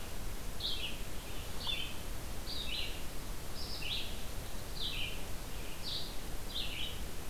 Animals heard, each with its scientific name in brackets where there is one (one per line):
Red-eyed Vireo (Vireo olivaceus)